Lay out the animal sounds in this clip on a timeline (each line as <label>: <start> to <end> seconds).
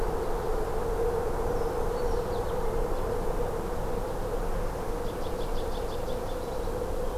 Brown Creeper (Certhia americana): 1.4 to 2.4 seconds
American Goldfinch (Spinus tristis): 2.2 to 2.7 seconds
American Goldfinch (Spinus tristis): 4.9 to 6.9 seconds